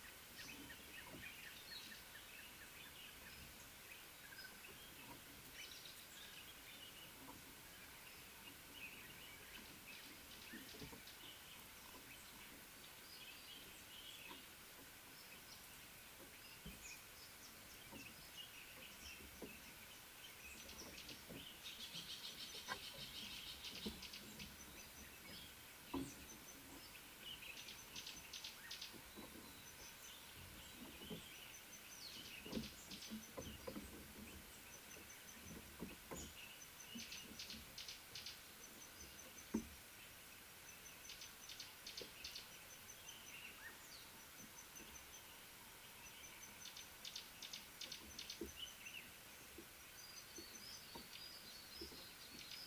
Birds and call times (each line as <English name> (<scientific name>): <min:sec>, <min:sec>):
Red-fronted Tinkerbird (Pogoniulus pusillus): 0:01.6
Speckled Mousebird (Colius striatus): 0:05.8
Gray-backed Camaroptera (Camaroptera brevicaudata): 0:10.5, 0:32.6, 0:41.6, 0:47.4
Northern Puffback (Dryoscopus gambensis): 0:23.0
Little Bee-eater (Merops pusillus): 0:51.3